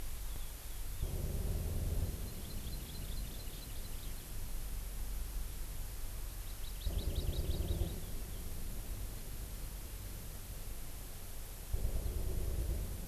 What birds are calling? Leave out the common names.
Chlorodrepanis virens